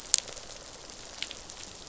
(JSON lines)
{"label": "biophony, rattle response", "recorder": "SoundTrap 500"}